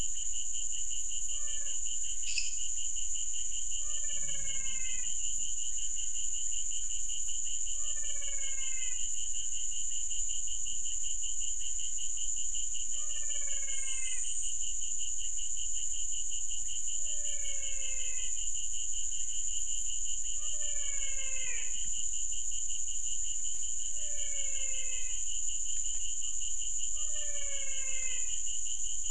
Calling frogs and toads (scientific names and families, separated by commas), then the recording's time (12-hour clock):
Physalaemus albonotatus (Leptodactylidae), Dendropsophus minutus (Hylidae)
7:15pm